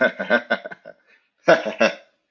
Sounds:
Laughter